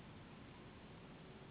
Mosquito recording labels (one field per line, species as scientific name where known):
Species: Anopheles gambiae s.s.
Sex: female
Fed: unfed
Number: one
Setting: insect culture